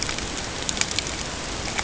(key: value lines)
label: ambient
recorder: HydroMoth